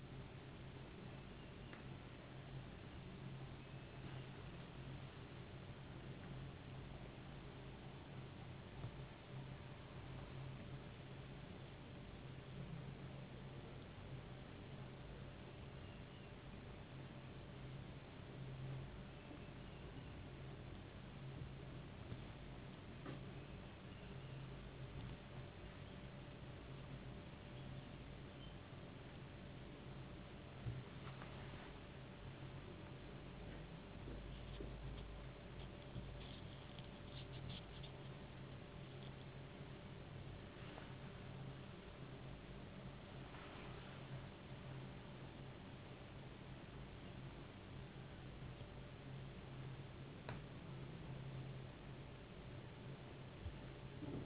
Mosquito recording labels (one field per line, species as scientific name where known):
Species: no mosquito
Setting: insect culture